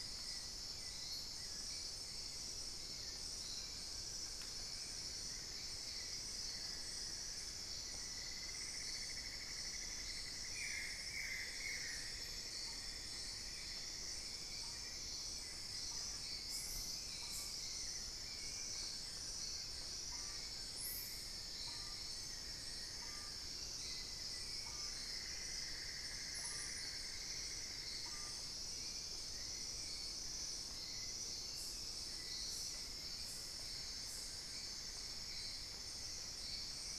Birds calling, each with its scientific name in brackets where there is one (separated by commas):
Amazonian Barred-Woodcreeper (Dendrocolaptes certhia), Amazonian Motmot (Momotus momota), Cinnamon-throated Woodcreeper (Dendrexetastes rufigula), Buff-throated Woodcreeper (Xiphorhynchus guttatus)